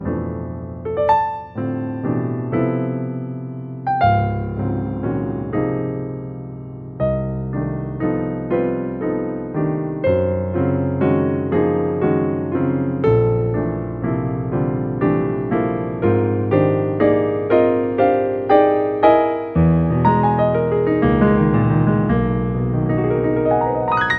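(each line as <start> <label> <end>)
0.0 Digital piano playing notes. 24.2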